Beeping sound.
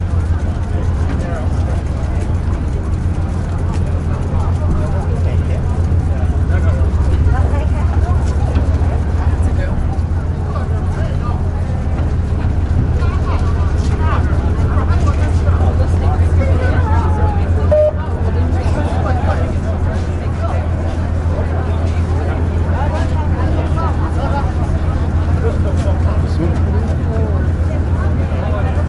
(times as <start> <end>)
17.7 18.0